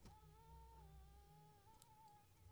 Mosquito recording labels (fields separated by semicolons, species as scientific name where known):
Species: mosquito; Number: one; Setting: cup